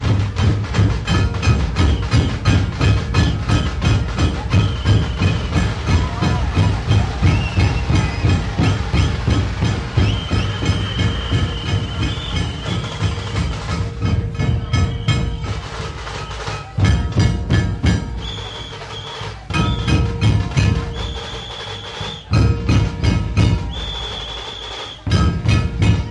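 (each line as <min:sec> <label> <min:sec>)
0:00.0 Indian rhythmic drums accompanied by whistles, metal sounds, and percussion like bells. 0:15.3
0:15.3 Metal percussion accompanied by drum snares. 0:16.7
0:16.8 Drum beats accompanied by metal plate percussion. 0:18.1
0:18.1 Metal percussion plays along with drum snares and a whistle. 0:19.5
0:19.4 Drum beats with metal plates and whistles. 0:20.9
0:20.9 Metal percussion plays along with drum snares and a whistle. 0:22.3
0:22.2 Drum beats with metal plates percussion followed by a whistle. 0:23.7
0:23.7 Metal percussion plays along with drum snares and a whistle. 0:25.1
0:25.0 Drum beats accompanied by metal plate percussion. 0:26.1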